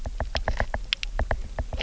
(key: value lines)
label: biophony, knock
recorder: SoundTrap 300